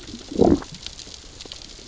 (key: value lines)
label: biophony, growl
recorder: SoundTrap 600 or HydroMoth